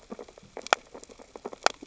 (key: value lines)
label: biophony, sea urchins (Echinidae)
recorder: SoundTrap 600 or HydroMoth